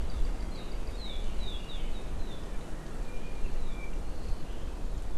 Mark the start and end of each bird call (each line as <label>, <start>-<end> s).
Apapane (Himatione sanguinea), 3.0-4.1 s